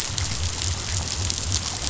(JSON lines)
{"label": "biophony", "recorder": "SoundTrap 500"}